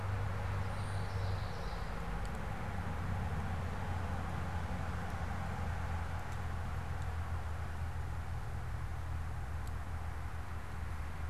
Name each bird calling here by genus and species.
Geothlypis trichas